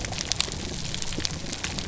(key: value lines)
label: biophony
recorder: SoundTrap 300